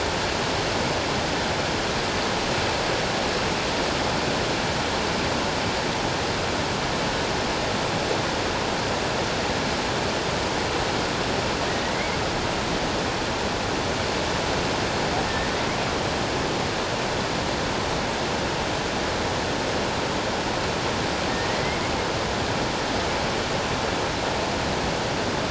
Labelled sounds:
21.5	21.8	humpback whale, 1.8 to 2.2 kHz

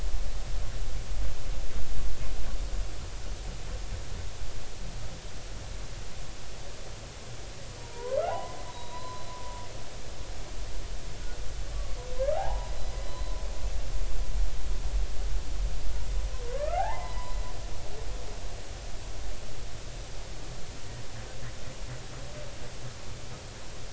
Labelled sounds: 7.8	9.3	humpback whale, 0.80 to 4.1 kHz
11.7	13.3	humpback whale, 0.80 to 4.0 kHz
16.5	17.4	humpback whale, 0.80 to 5.0 kHz

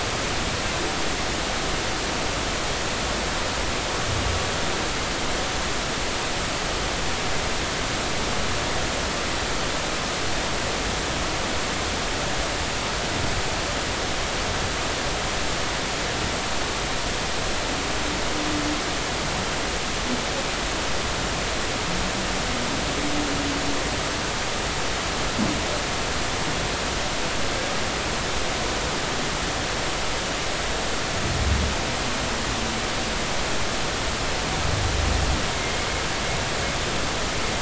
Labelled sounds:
35.5	35.8	humpback whale, 2.1 to 2.2 kHz

